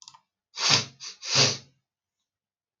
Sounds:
Sniff